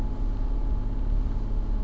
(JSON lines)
{"label": "anthrophony, boat engine", "recorder": "SoundTrap 300"}